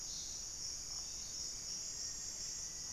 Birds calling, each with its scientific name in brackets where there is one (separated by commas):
Mealy Parrot (Amazona farinosa), Black-faced Antthrush (Formicarius analis)